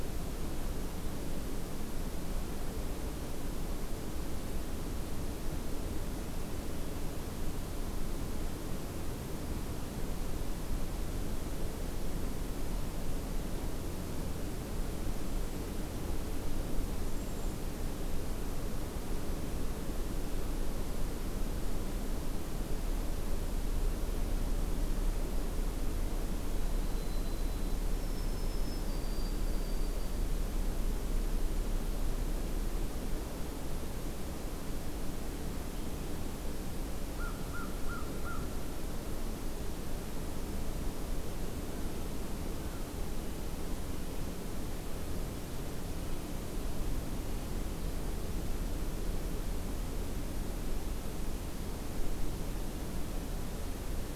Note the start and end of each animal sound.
[16.95, 17.67] Cedar Waxwing (Bombycilla cedrorum)
[26.85, 30.33] White-throated Sparrow (Zonotrichia albicollis)
[37.06, 38.49] American Crow (Corvus brachyrhynchos)

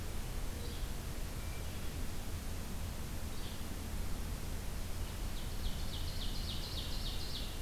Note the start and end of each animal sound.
[0.49, 0.83] Yellow-bellied Flycatcher (Empidonax flaviventris)
[1.23, 2.03] Hermit Thrush (Catharus guttatus)
[3.31, 3.60] Yellow-bellied Flycatcher (Empidonax flaviventris)
[5.21, 7.61] Ovenbird (Seiurus aurocapilla)

